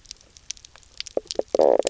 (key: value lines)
label: biophony, knock croak
recorder: SoundTrap 300